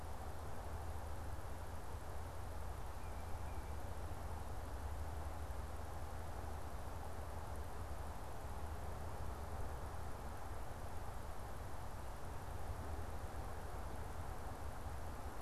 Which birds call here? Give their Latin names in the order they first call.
Baeolophus bicolor